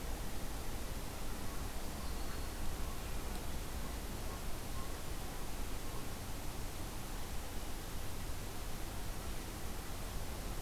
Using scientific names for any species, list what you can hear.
forest ambience